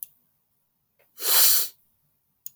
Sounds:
Sniff